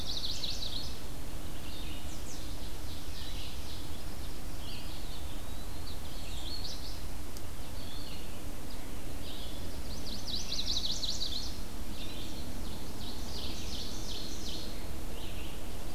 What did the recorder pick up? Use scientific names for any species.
Setophaga pensylvanica, Vireo olivaceus, Hylocichla mustelina, Seiurus aurocapilla, Contopus virens